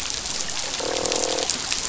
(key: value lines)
label: biophony, croak
recorder: SoundTrap 500